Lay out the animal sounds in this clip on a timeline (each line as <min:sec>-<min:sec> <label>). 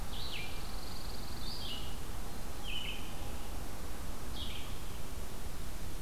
0:00.0-0:06.0 Red-eyed Vireo (Vireo olivaceus)
0:00.0-0:01.8 Pine Warbler (Setophaga pinus)